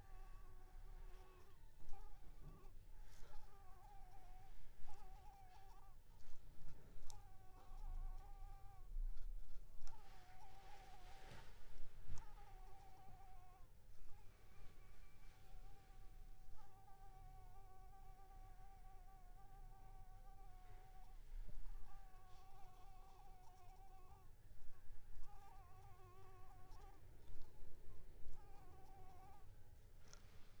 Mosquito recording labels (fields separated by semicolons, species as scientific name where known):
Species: Anopheles coustani; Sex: female; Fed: unfed; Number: one; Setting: cup